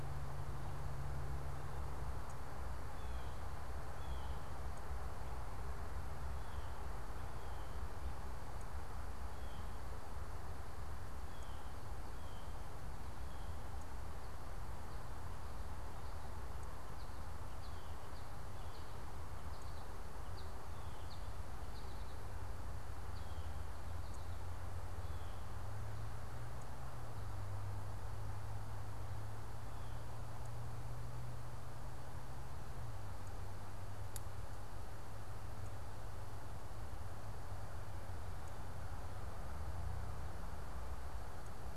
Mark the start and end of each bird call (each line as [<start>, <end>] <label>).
[2.81, 13.91] Blue Jay (Cyanocitta cristata)
[16.81, 23.61] American Goldfinch (Spinus tristis)